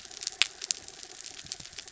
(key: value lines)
label: anthrophony, mechanical
recorder: SoundTrap 300